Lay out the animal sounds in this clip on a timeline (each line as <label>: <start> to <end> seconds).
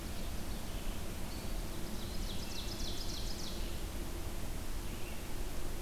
Ovenbird (Seiurus aurocapilla): 0.0 to 0.8 seconds
Red-eyed Vireo (Vireo olivaceus): 0.0 to 5.8 seconds
Ovenbird (Seiurus aurocapilla): 1.5 to 3.8 seconds